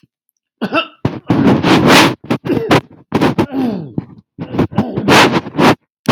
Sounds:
Throat clearing